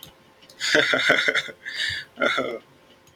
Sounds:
Laughter